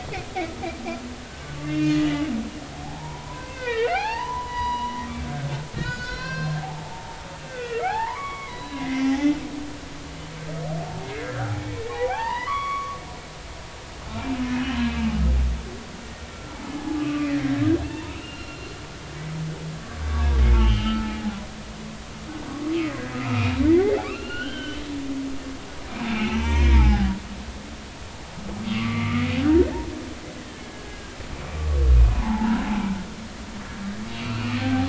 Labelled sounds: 1.2	2.3	humpback whale, 1.4 to 3.1 kHz
2.8	5.0	humpback whale, 0.80 to 5.9 kHz
5.8	9.1	humpback whale, 0.80 to 7.0 kHz
11.0	13.0	humpback whale, 0.80 to 5.0 kHz
14.9	15.1	humpback whale, 2.4 to 2.6 kHz
16.3	17.3	humpback whale, 0.80 to 1.4 kHz
17.9	18.7	humpback whale, 0.86 to 2.9 kHz
20.1	21.2	humpback whale, 0.80 to 3.3 kHz
23.1	23.5	humpback whale, 1.2 to 2.8 kHz
24.0	24.8	humpback whale, 1.1 to 4.4 kHz
26.1	27.1	humpback whale, 0.80 to 5.2 kHz
28.7	29.6	humpback whale, 1.1 to 2.4 kHz
30.5	31.2	humpback whale, 1.5 to 3.2 kHz
31.9	32.6	humpback whale, 0.80 to 2.5 kHz
34.1	34.8	humpback whale, 0.80 to 3.0 kHz

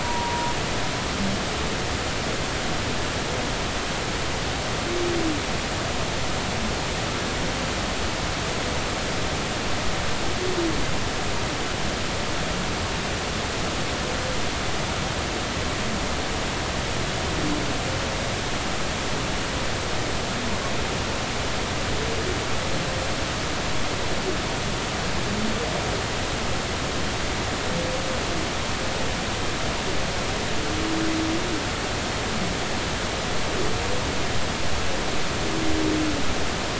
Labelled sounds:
0.0	0.5	humpback whale, 0.90 to 1.0 kHz

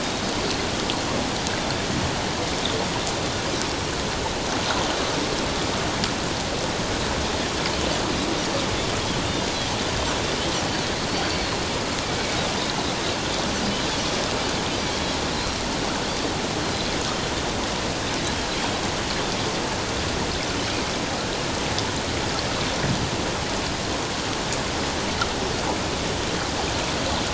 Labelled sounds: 0.0	0.3	Pacific white-sided dolphin, 3.7 to 3.8 kHz
11.1	11.6	Pacific white-sided dolphin, 4.1 to 4.6 kHz
14.9	15.2	Pacific white-sided dolphin, 3.2 to 3.5 kHz

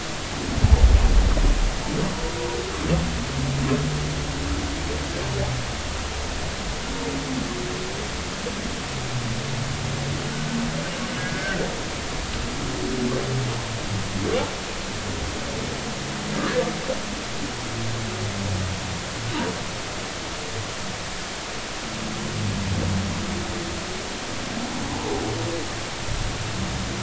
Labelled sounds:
11.2	11.6	humpback whale, 1.5 to 1.7 kHz
24.9	25.2	humpback whale, 0.80 to 1.1 kHz

